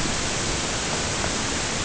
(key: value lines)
label: ambient
recorder: HydroMoth